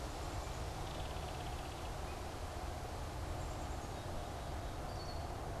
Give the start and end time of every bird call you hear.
0.7s-2.0s: Belted Kingfisher (Megaceryle alcyon)
3.0s-4.7s: Black-capped Chickadee (Poecile atricapillus)
4.6s-5.4s: Red-winged Blackbird (Agelaius phoeniceus)

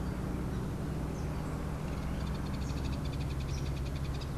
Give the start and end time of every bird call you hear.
2.2s-4.3s: Hoffmann's Woodpecker (Melanerpes hoffmannii)

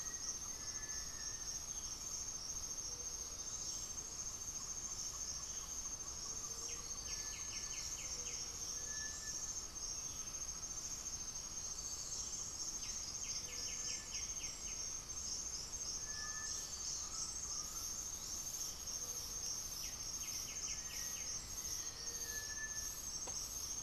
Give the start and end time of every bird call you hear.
0.0s-1.5s: Black-faced Antthrush (Formicarius analis)
0.0s-1.6s: Cinereous Tinamou (Crypturellus cinereus)
0.0s-8.0s: Great Antshrike (Taraba major)
0.0s-23.8s: Gray-fronted Dove (Leptotila rufaxilla)
6.4s-8.6s: White-winged Becard (Pachyramphus polychopterus)
8.6s-9.5s: Cinereous Tinamou (Crypturellus cinereus)
12.7s-14.9s: White-winged Becard (Pachyramphus polychopterus)
15.8s-16.7s: Cinereous Tinamou (Crypturellus cinereus)
16.1s-18.1s: Undulated Tinamou (Crypturellus undulatus)
19.4s-21.6s: White-winged Becard (Pachyramphus polychopterus)
20.8s-23.1s: Black-faced Antthrush (Formicarius analis)
22.2s-23.0s: Cinereous Tinamou (Crypturellus cinereus)

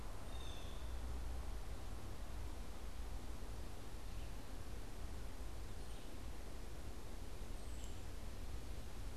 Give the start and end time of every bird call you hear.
0.0s-1.0s: Blue Jay (Cyanocitta cristata)
3.8s-9.2s: Red-eyed Vireo (Vireo olivaceus)
7.4s-8.4s: unidentified bird

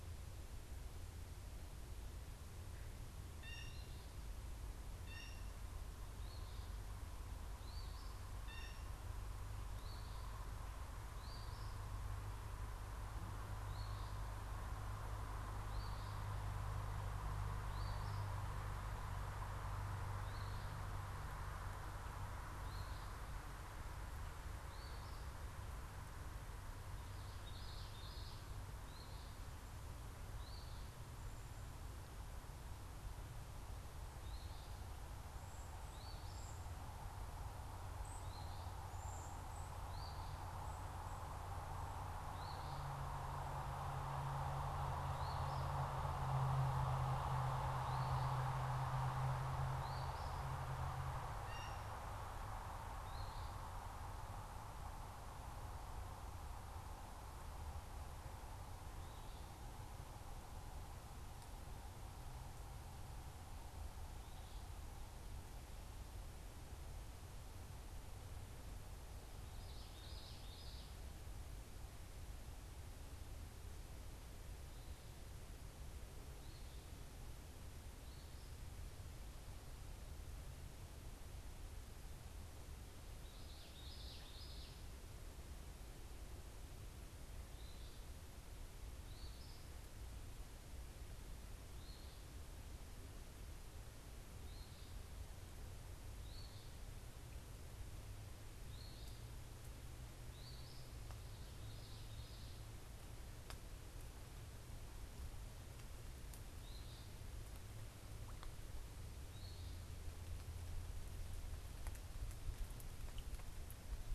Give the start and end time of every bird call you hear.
3.2s-4.0s: Blue Jay (Cyanocitta cristata)
4.9s-5.9s: Blue Jay (Cyanocitta cristata)
6.1s-16.3s: Eastern Phoebe (Sayornis phoebe)
8.4s-8.9s: Blue Jay (Cyanocitta cristata)
17.3s-18.3s: Eastern Phoebe (Sayornis phoebe)
20.0s-25.3s: Eastern Phoebe (Sayornis phoebe)
27.3s-28.5s: Common Yellowthroat (Geothlypis trichas)
28.9s-30.8s: Eastern Phoebe (Sayornis phoebe)
33.9s-45.8s: Eastern Phoebe (Sayornis phoebe)
35.1s-39.9s: Yellow-bellied Sapsucker (Sphyrapicus varius)
47.5s-50.6s: Eastern Phoebe (Sayornis phoebe)
51.4s-52.1s: Blue Jay (Cyanocitta cristata)
52.9s-53.5s: Eastern Phoebe (Sayornis phoebe)
69.4s-71.0s: Common Yellowthroat (Geothlypis trichas)
76.2s-78.7s: Eastern Phoebe (Sayornis phoebe)
83.1s-85.0s: Common Yellowthroat (Geothlypis trichas)
87.2s-96.9s: Eastern Phoebe (Sayornis phoebe)
98.7s-101.0s: Eastern Phoebe (Sayornis phoebe)
101.4s-102.7s: Common Yellowthroat (Geothlypis trichas)
106.2s-109.9s: Eastern Phoebe (Sayornis phoebe)

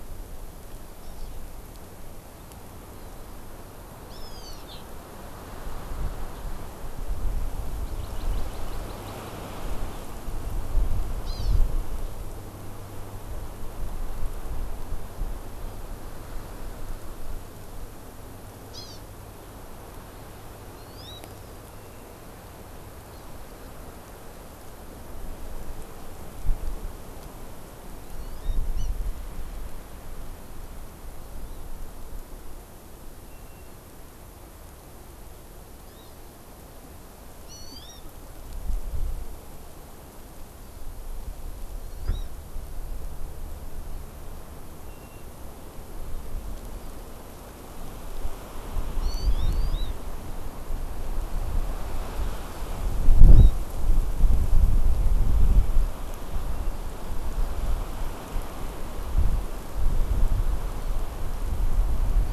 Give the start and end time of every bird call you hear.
4.1s-4.7s: Hawaiian Hawk (Buteo solitarius)
7.9s-9.3s: Hawaii Amakihi (Chlorodrepanis virens)
11.3s-11.6s: Hawaii Amakihi (Chlorodrepanis virens)
18.7s-19.0s: Hawaii Amakihi (Chlorodrepanis virens)
20.8s-21.2s: Hawaii Amakihi (Chlorodrepanis virens)
28.0s-28.9s: Hawaii Amakihi (Chlorodrepanis virens)
31.2s-31.6s: Hawaii Amakihi (Chlorodrepanis virens)
35.8s-36.1s: Hawaii Amakihi (Chlorodrepanis virens)
37.5s-38.0s: Hawaii Amakihi (Chlorodrepanis virens)
41.8s-42.3s: Hawaii Amakihi (Chlorodrepanis virens)
49.0s-49.9s: Hawaii Amakihi (Chlorodrepanis virens)
53.3s-53.6s: Hawaii Amakihi (Chlorodrepanis virens)

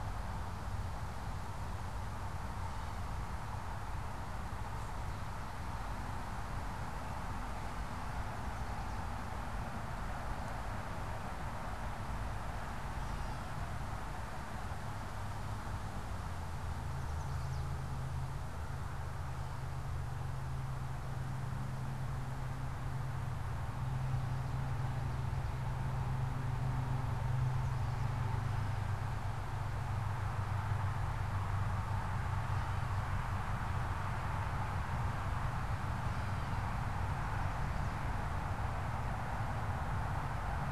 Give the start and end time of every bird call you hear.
2.6s-3.3s: Gray Catbird (Dumetella carolinensis)
12.9s-13.7s: Gray Catbird (Dumetella carolinensis)
16.9s-17.8s: Chestnut-sided Warbler (Setophaga pensylvanica)
28.2s-37.0s: Gray Catbird (Dumetella carolinensis)

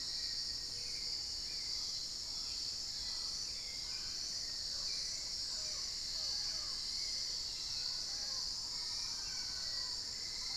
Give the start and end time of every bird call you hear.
0.0s-0.7s: Black-faced Antthrush (Formicarius analis)
0.0s-10.6s: Hauxwell's Thrush (Turdus hauxwelli)
1.2s-10.6s: Mealy Parrot (Amazona farinosa)
1.6s-4.4s: Long-winged Antwren (Myrmotherula longipennis)
6.3s-9.0s: Dusky-throated Antshrike (Thamnomanes ardesiacus)
7.3s-8.0s: unidentified bird
9.4s-10.6s: Black-faced Antthrush (Formicarius analis)

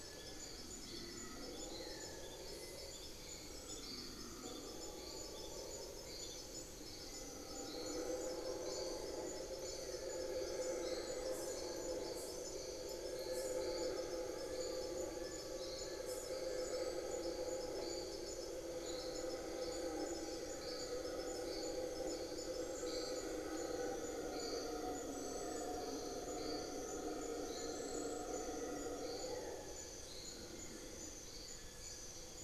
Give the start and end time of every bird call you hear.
3.4s-8.9s: Amazonian Pygmy-Owl (Glaucidium hardyi)
11.5s-17.0s: Fasciated Antshrike (Cymbilaimus lineatus)

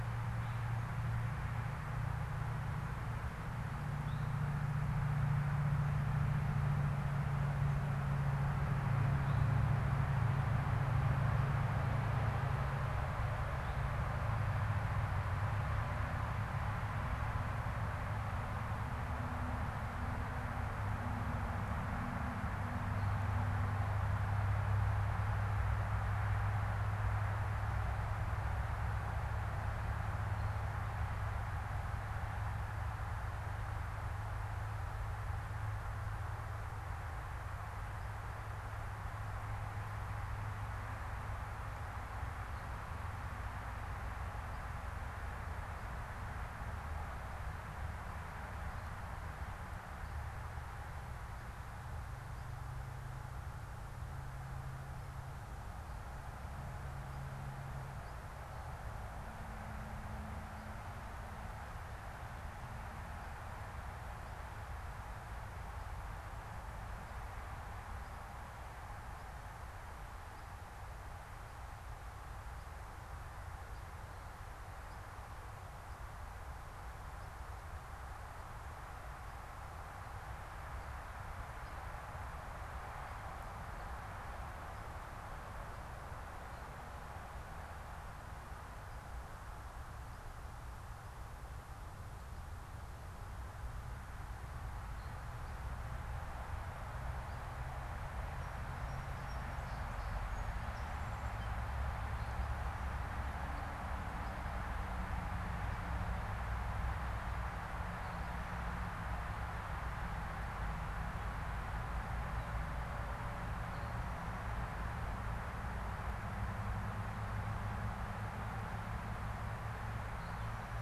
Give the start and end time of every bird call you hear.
0.2s-0.8s: Eastern Towhee (Pipilo erythrophthalmus)
4.0s-4.2s: Eastern Towhee (Pipilo erythrophthalmus)
9.2s-9.6s: Eastern Towhee (Pipilo erythrophthalmus)
13.4s-13.9s: Eastern Towhee (Pipilo erythrophthalmus)
98.0s-101.2s: Song Sparrow (Melospiza melodia)

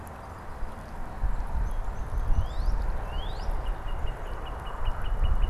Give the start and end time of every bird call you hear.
2.1s-5.5s: Northern Cardinal (Cardinalis cardinalis)

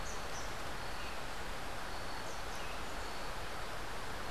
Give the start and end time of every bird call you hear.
0.0s-0.6s: Rufous-tailed Hummingbird (Amazilia tzacatl)

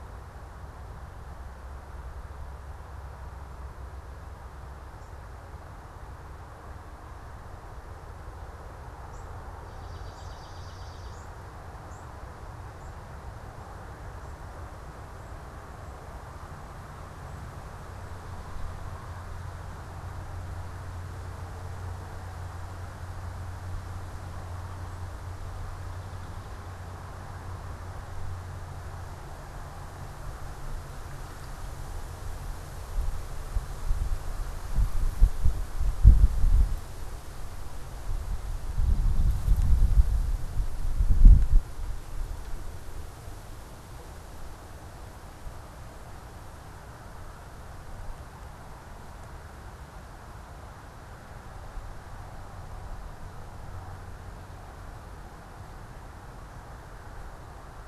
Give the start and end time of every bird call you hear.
9.0s-13.1s: unidentified bird
9.7s-11.4s: Swamp Sparrow (Melospiza georgiana)
18.1s-19.5s: Swamp Sparrow (Melospiza georgiana)
25.4s-26.9s: Swamp Sparrow (Melospiza georgiana)
38.6s-40.2s: Swamp Sparrow (Melospiza georgiana)

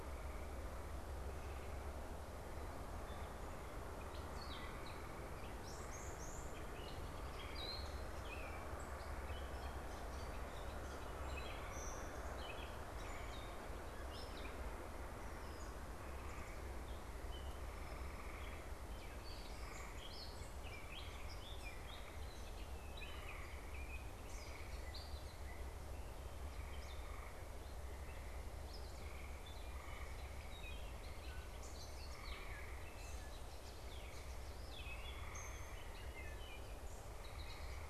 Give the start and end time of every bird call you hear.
4.0s-15.9s: Gray Catbird (Dumetella carolinensis)
6.7s-7.9s: American Robin (Turdus migratorius)
16.7s-37.8s: Gray Catbird (Dumetella carolinensis)

